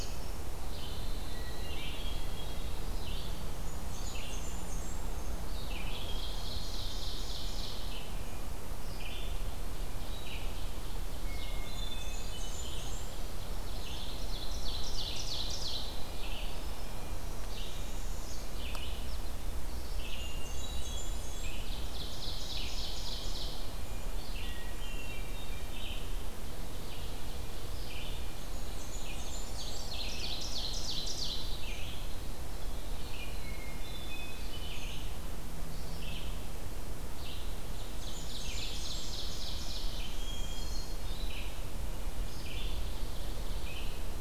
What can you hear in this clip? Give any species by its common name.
Red-eyed Vireo, Hermit Thrush, Blackburnian Warbler, Ovenbird, Northern Parula